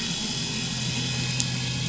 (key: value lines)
label: anthrophony, boat engine
recorder: SoundTrap 500